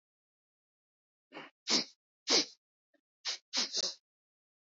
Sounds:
Sniff